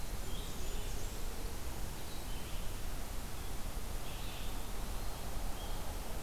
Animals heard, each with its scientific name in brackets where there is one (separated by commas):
Red-eyed Vireo (Vireo olivaceus), Blackburnian Warbler (Setophaga fusca), Eastern Wood-Pewee (Contopus virens)